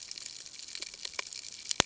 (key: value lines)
label: ambient
recorder: HydroMoth